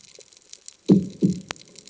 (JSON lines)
{"label": "anthrophony, bomb", "recorder": "HydroMoth"}